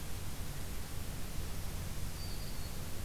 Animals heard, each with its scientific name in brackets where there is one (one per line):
Black-throated Green Warbler (Setophaga virens)